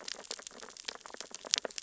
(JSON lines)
{"label": "biophony, sea urchins (Echinidae)", "recorder": "SoundTrap 600 or HydroMoth"}